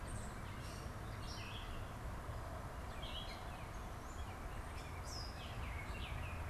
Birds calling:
Gray Catbird (Dumetella carolinensis)
Baltimore Oriole (Icterus galbula)

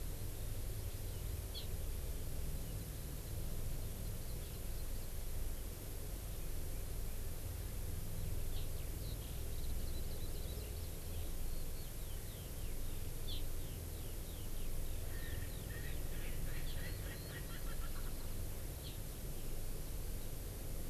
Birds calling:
Hawaii Amakihi (Chlorodrepanis virens)
Erckel's Francolin (Pternistis erckelii)
Eurasian Skylark (Alauda arvensis)

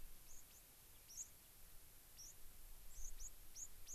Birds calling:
White-crowned Sparrow (Zonotrichia leucophrys)

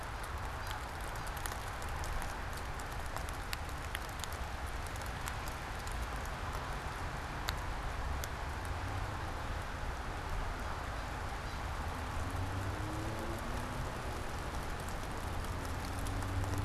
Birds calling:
American Crow (Corvus brachyrhynchos)

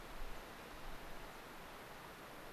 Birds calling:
American Pipit (Anthus rubescens)

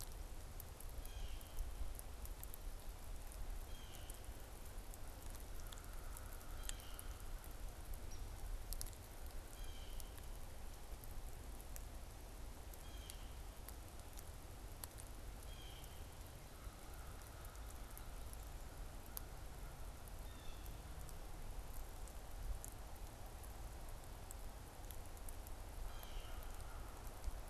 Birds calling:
Downy Woodpecker (Dryobates pubescens)
American Crow (Corvus brachyrhynchos)
Blue Jay (Cyanocitta cristata)

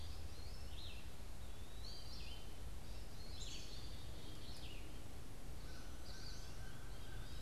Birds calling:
American Goldfinch (Spinus tristis)
American Crow (Corvus brachyrhynchos)
Eastern Wood-Pewee (Contopus virens)
Black-capped Chickadee (Poecile atricapillus)
Red-eyed Vireo (Vireo olivaceus)

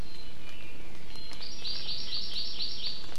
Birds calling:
Iiwi (Drepanis coccinea)
Hawaii Amakihi (Chlorodrepanis virens)

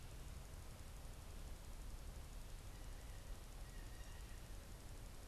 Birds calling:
Blue Jay (Cyanocitta cristata)

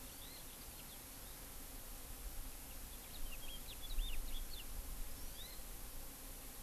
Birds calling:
Hawaii Amakihi (Chlorodrepanis virens)
House Finch (Haemorhous mexicanus)

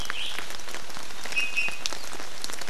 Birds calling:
Iiwi (Drepanis coccinea)

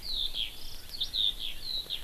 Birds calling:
Eurasian Skylark (Alauda arvensis)

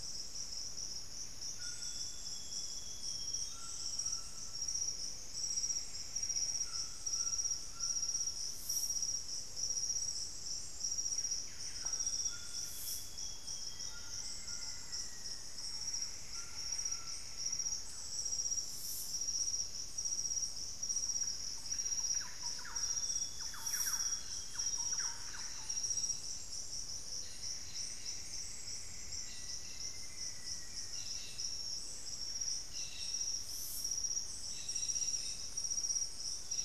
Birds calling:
Thrush-like Wren (Campylorhynchus turdinus)
Golden-crowned Spadebill (Platyrinchus coronatus)
Buff-breasted Wren (Cantorchilus leucotis)
Plumbeous Antbird (Myrmelastes hyperythrus)
Black-faced Antthrush (Formicarius analis)
Amazonian Grosbeak (Cyanoloxia rothschildii)
White-throated Toucan (Ramphastos tucanus)

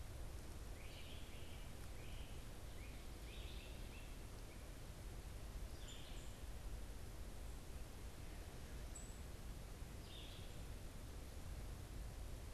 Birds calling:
Red-eyed Vireo (Vireo olivaceus)
unidentified bird
Great Crested Flycatcher (Myiarchus crinitus)

